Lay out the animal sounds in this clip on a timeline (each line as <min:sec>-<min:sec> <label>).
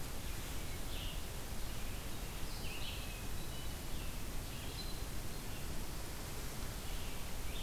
0:00.0-0:07.6 Red-eyed Vireo (Vireo olivaceus)
0:03.0-0:04.4 Hermit Thrush (Catharus guttatus)